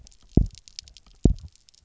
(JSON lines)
{"label": "biophony, double pulse", "recorder": "SoundTrap 300"}